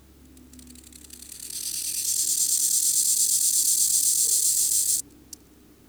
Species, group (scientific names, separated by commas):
Gomphocerippus rufus, Orthoptera